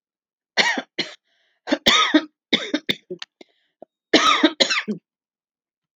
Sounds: Cough